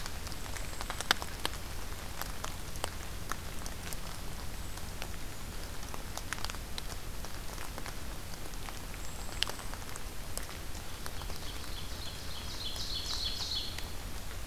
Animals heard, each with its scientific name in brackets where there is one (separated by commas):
Ovenbird (Seiurus aurocapilla), Golden-crowned Kinglet (Regulus satrapa)